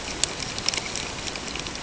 {"label": "ambient", "recorder": "HydroMoth"}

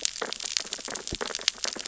{"label": "biophony, sea urchins (Echinidae)", "recorder": "SoundTrap 600 or HydroMoth"}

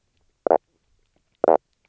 {"label": "biophony, knock croak", "recorder": "SoundTrap 300"}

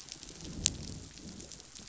{"label": "biophony, growl", "recorder": "SoundTrap 500"}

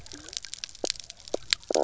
{"label": "biophony, stridulation", "recorder": "SoundTrap 300"}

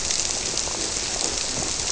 {"label": "biophony", "recorder": "SoundTrap 300"}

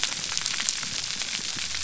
{"label": "biophony", "recorder": "SoundTrap 300"}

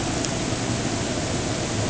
{"label": "ambient", "recorder": "HydroMoth"}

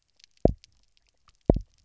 {"label": "biophony, double pulse", "recorder": "SoundTrap 300"}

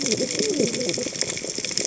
{"label": "biophony, cascading saw", "recorder": "HydroMoth"}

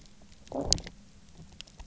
{"label": "biophony, low growl", "recorder": "SoundTrap 300"}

